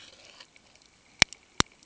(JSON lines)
{"label": "ambient", "recorder": "HydroMoth"}